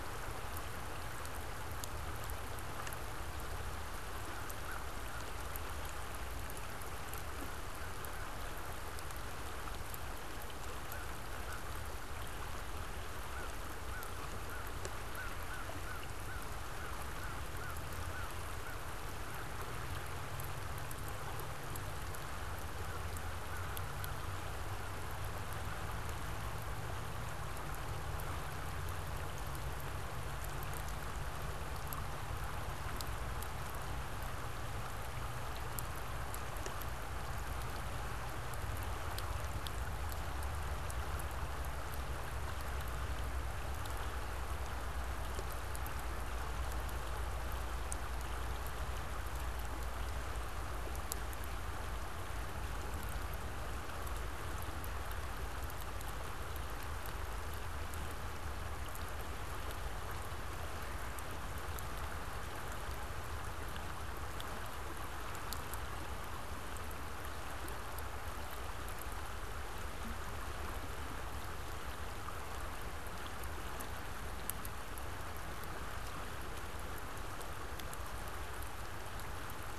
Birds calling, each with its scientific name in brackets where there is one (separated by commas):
American Crow (Corvus brachyrhynchos)